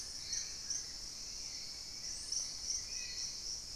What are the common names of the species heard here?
Buff-throated Woodcreeper, Spot-winged Antshrike, unidentified bird